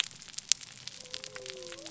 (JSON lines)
{"label": "biophony", "recorder": "SoundTrap 300"}